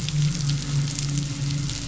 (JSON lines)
{"label": "biophony, midshipman", "recorder": "SoundTrap 500"}